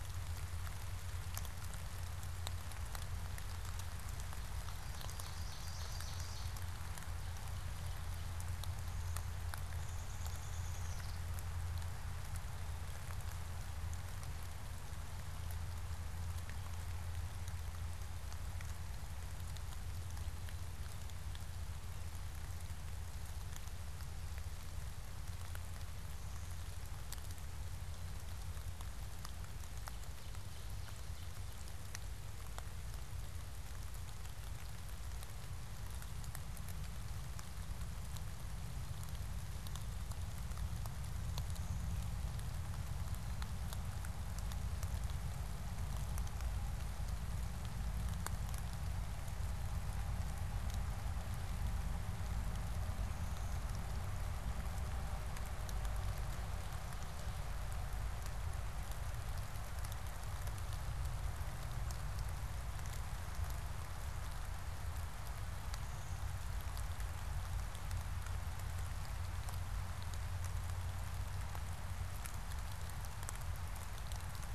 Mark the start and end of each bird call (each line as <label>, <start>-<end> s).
Ovenbird (Seiurus aurocapilla), 4.2-8.4 s
Downy Woodpecker (Dryobates pubescens), 9.4-11.6 s
Blue-winged Warbler (Vermivora cyanoptera), 25.8-27.2 s
Ovenbird (Seiurus aurocapilla), 29.2-31.6 s
Blue-winged Warbler (Vermivora cyanoptera), 52.9-54.3 s
Blue-winged Warbler (Vermivora cyanoptera), 65.4-67.1 s